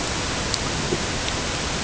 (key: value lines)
label: ambient
recorder: HydroMoth